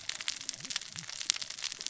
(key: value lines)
label: biophony, cascading saw
recorder: SoundTrap 600 or HydroMoth